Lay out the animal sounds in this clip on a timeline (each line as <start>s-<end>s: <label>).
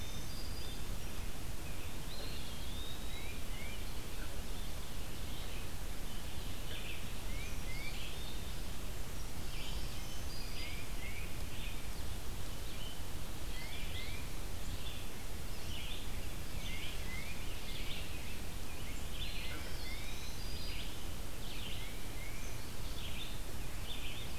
0.0s-1.1s: Black-throated Green Warbler (Setophaga virens)
0.0s-24.4s: Red-eyed Vireo (Vireo olivaceus)
1.9s-3.5s: Eastern Wood-Pewee (Contopus virens)
2.7s-3.9s: Tufted Titmouse (Baeolophus bicolor)
6.9s-8.2s: Tufted Titmouse (Baeolophus bicolor)
9.4s-10.9s: Black-throated Green Warbler (Setophaga virens)
10.0s-11.6s: Tufted Titmouse (Baeolophus bicolor)
13.2s-14.8s: Tufted Titmouse (Baeolophus bicolor)
16.5s-17.5s: Tufted Titmouse (Baeolophus bicolor)
19.0s-20.3s: Tufted Titmouse (Baeolophus bicolor)
19.1s-20.6s: Eastern Wood-Pewee (Contopus virens)
19.3s-21.1s: Black-throated Green Warbler (Setophaga virens)
21.7s-22.6s: Tufted Titmouse (Baeolophus bicolor)